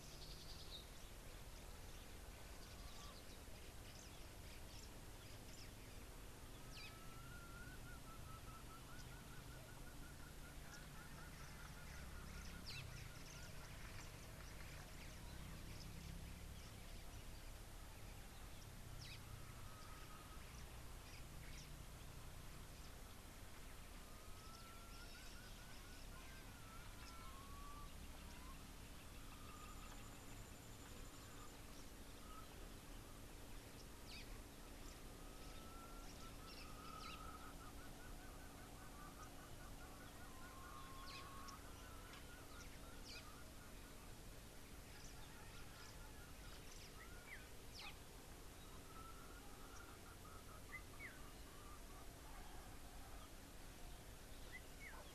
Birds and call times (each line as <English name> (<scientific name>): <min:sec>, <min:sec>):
Red-backed Scrub-Robin (Cercotrichas leucophrys): 0:00.5
Parrot-billed Sparrow (Passer gongonensis): 0:19.1